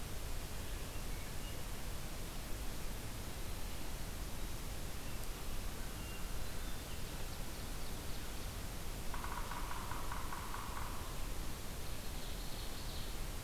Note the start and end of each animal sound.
[6.51, 8.81] Ovenbird (Seiurus aurocapilla)
[9.06, 11.15] Yellow-bellied Sapsucker (Sphyrapicus varius)
[11.86, 13.44] Ovenbird (Seiurus aurocapilla)

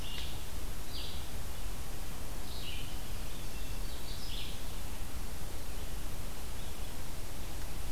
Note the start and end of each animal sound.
[0.00, 4.60] Red-eyed Vireo (Vireo olivaceus)
[3.39, 4.74] Hermit Thrush (Catharus guttatus)

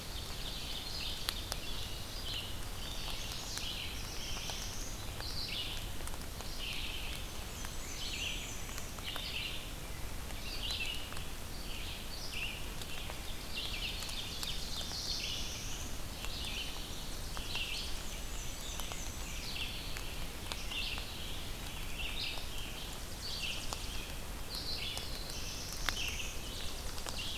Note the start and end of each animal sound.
[0.00, 1.69] Ovenbird (Seiurus aurocapilla)
[0.83, 27.37] Red-eyed Vireo (Vireo olivaceus)
[2.60, 3.73] Chestnut-sided Warbler (Setophaga pensylvanica)
[3.54, 4.98] Black-throated Blue Warbler (Setophaga caerulescens)
[7.17, 8.94] Black-and-white Warbler (Mniotilta varia)
[13.25, 14.90] Ovenbird (Seiurus aurocapilla)
[14.65, 15.94] Black-throated Blue Warbler (Setophaga caerulescens)
[16.25, 18.12] Tennessee Warbler (Leiothlypis peregrina)
[17.99, 19.47] Black-and-white Warbler (Mniotilta varia)
[19.31, 20.42] Black-throated Blue Warbler (Setophaga caerulescens)
[22.55, 24.29] Tennessee Warbler (Leiothlypis peregrina)
[24.95, 26.36] Black-throated Blue Warbler (Setophaga caerulescens)
[25.48, 27.37] Tennessee Warbler (Leiothlypis peregrina)

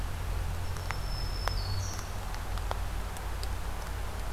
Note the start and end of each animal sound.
[0.47, 2.60] Black-throated Green Warbler (Setophaga virens)

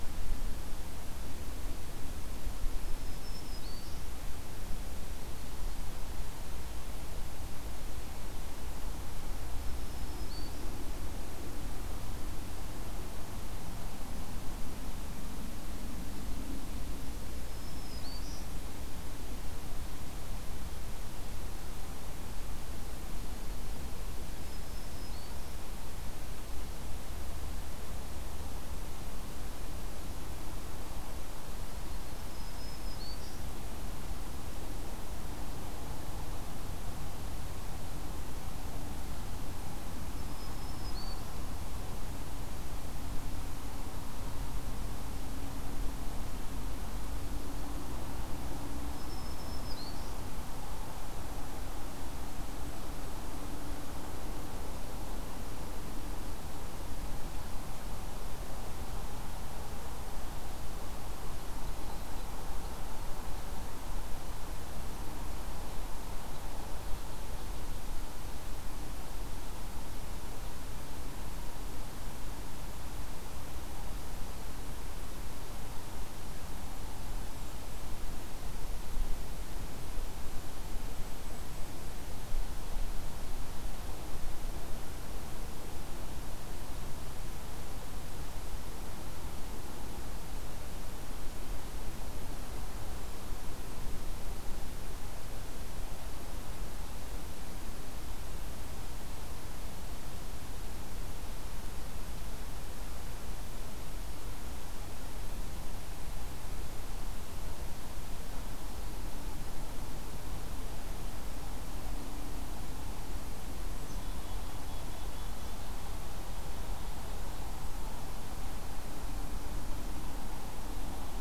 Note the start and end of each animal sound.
[2.76, 4.10] Black-throated Green Warbler (Setophaga virens)
[9.59, 10.75] Black-throated Green Warbler (Setophaga virens)
[17.39, 18.53] Black-throated Green Warbler (Setophaga virens)
[24.33, 25.60] Black-throated Green Warbler (Setophaga virens)
[32.12, 33.42] Black-throated Green Warbler (Setophaga virens)
[40.02, 41.42] Black-throated Green Warbler (Setophaga virens)
[48.87, 50.24] Black-throated Green Warbler (Setophaga virens)
[52.14, 53.63] Golden-crowned Kinglet (Regulus satrapa)
[80.17, 82.10] Golden-crowned Kinglet (Regulus satrapa)
[113.79, 115.64] Black-capped Chickadee (Poecile atricapillus)

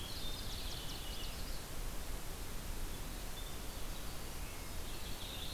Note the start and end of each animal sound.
[0.00, 1.86] Purple Finch (Haemorhous purpureus)
[2.31, 5.54] Winter Wren (Troglodytes hiemalis)
[4.68, 5.54] Purple Finch (Haemorhous purpureus)

